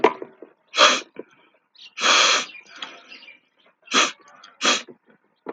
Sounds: Sniff